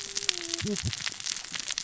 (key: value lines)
label: biophony, cascading saw
recorder: SoundTrap 600 or HydroMoth